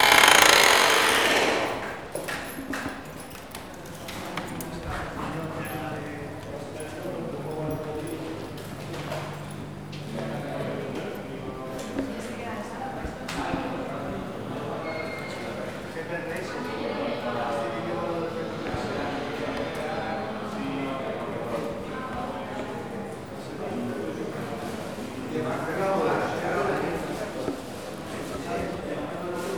are there any animals present?
no